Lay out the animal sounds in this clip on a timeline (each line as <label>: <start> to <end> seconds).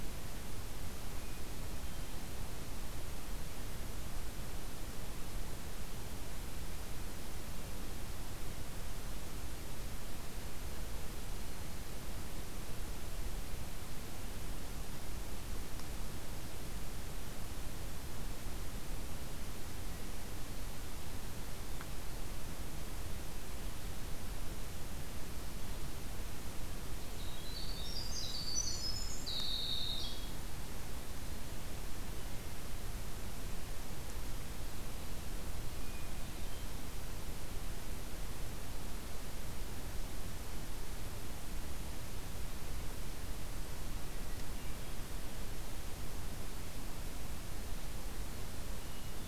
Winter Wren (Troglodytes hiemalis): 27.0 to 30.5 seconds
Hermit Thrush (Catharus guttatus): 35.7 to 36.9 seconds